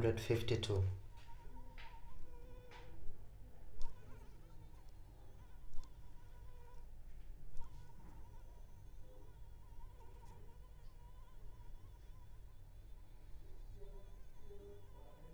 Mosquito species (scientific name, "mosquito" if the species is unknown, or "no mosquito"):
Anopheles arabiensis